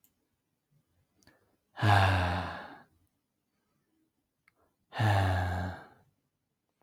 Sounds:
Sigh